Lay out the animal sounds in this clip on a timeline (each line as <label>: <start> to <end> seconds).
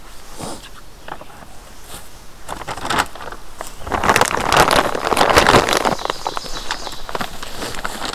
Ovenbird (Seiurus aurocapilla): 5.4 to 7.2 seconds